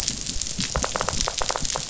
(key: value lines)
label: biophony, knock
recorder: SoundTrap 500